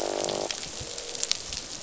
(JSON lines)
{"label": "biophony, croak", "recorder": "SoundTrap 500"}